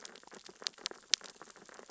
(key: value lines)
label: biophony, sea urchins (Echinidae)
recorder: SoundTrap 600 or HydroMoth